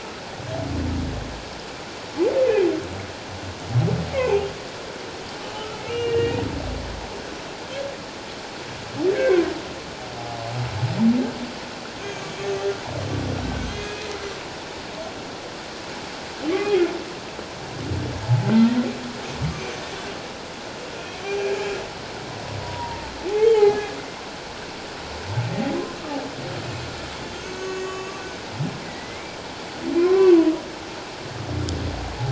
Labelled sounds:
4.2	4.5	humpback whale, 2.3 to 2.8 kHz
5.5	6.4	humpback whale, 1.2 to 2.9 kHz
9.1	9.4	humpback whale, 1.4 to 2.3 kHz
12.0	12.3	humpback whale, 2.3 to 2.5 kHz
13.6	14.1	humpback whale, 2.4 to 6.5 kHz
16.5	16.8	humpback whale, 1.1 to 1.3 kHz
21.2	21.5	humpback whale, 2.2 to 2.5 kHz
22.6	23.8	humpback whale, 0.88 to 2.3 kHz
27.3	28.1	humpback whale, 1.1 to 6.8 kHz
28.8	30.4	humpback whale, 0.94 to 2.4 kHz

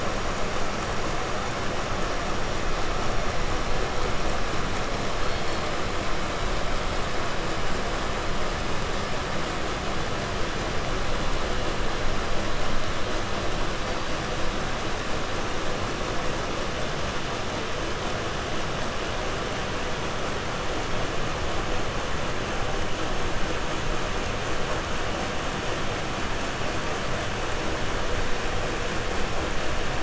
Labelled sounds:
5.1	5.7	killer whale, 1.6 to 4.7 kHz
13.8	14.3	killer whale, 4.2 to 4.9 kHz

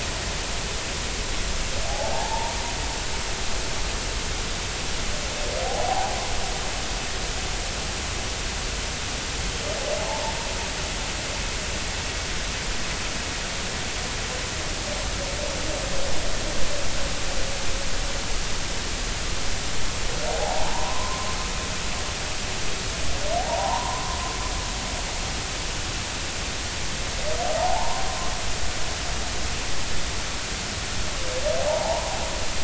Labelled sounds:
1.8	2.5	humpback whale, 0.80 to 0.99 kHz
5.6	6.2	humpback whale, 0.80 to 0.99 kHz
10.0	10.3	humpback whale, 0.80 to 1.1 kHz
20.3	21.3	humpback whale, 0.80 to 1.1 kHz
23.5	24.0	humpback whale, 0.80 to 1.1 kHz
27.5	28.0	humpback whale, 0.80 to 1.1 kHz
31.7	32.2	humpback whale, 0.80 to 1.1 kHz

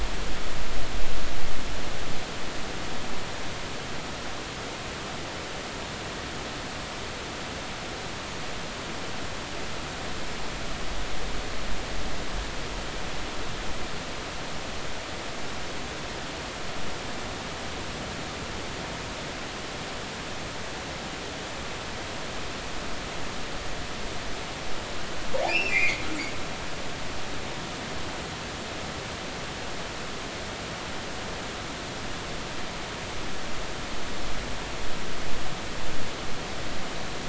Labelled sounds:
25.5	26.1	killer whale, northern resident, 1.9 to 2.9 kHz

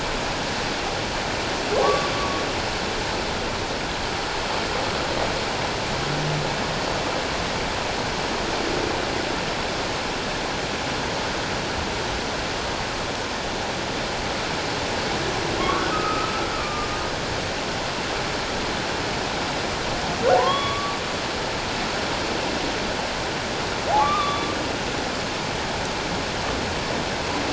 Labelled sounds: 1.8	2.1	humpback whale, 1.1 to 1.2 kHz
15.6	16.9	humpback whale, 1.0 to 1.6 kHz
20.4	21.0	humpback whale, 0.84 to 3.4 kHz
24.0	24.5	humpback whale, 1.0 to 3.7 kHz

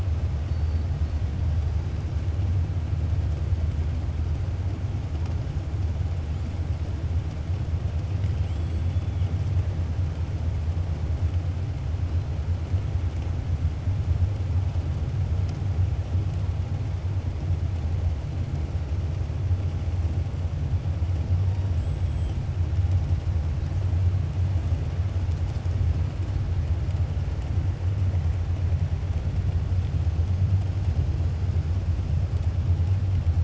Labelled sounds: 21.6	22.4	killer whale, 6.7 to 8.0 kHz

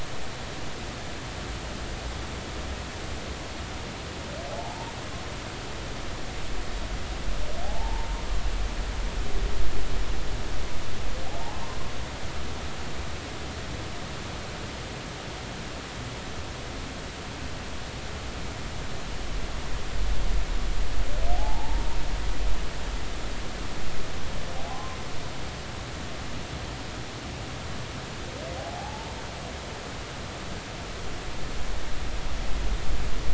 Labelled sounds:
4.5	4.9	humpback whale, 0.80 to 0.99 kHz
7.6	8.2	humpback whale, 0.80 to 1.1 kHz
21.3	22.0	humpback whale, 0.80 to 1.0 kHz
24.6	25.0	humpback whale, 0.80 to 1.1 kHz
28.6	29.1	humpback whale, 0.80 to 0.96 kHz

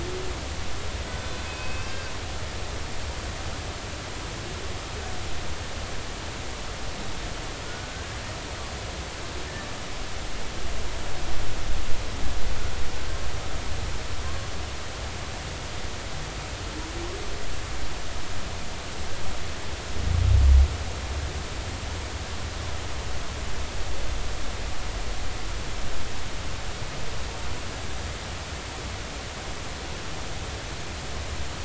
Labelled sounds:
1.1	2.1	humpback whale, 1.5 to 2.7 kHz
7.7	8.1	humpback whale, 1.4 to 1.6 kHz
14.2	14.5	humpback whale, 0.99 to 1.1 kHz

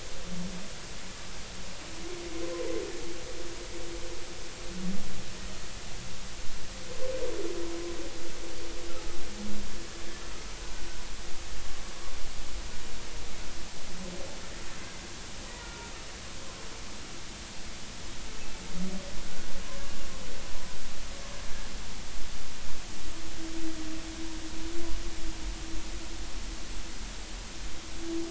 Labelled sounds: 8.9	9.2	humpback whale, 1.2 to 1.4 kHz
15.5	15.9	humpback whale, 1.4 to 2.0 kHz
19.7	19.9	humpback whale, 0.99 to 1.2 kHz

